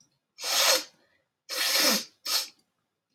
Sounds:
Sniff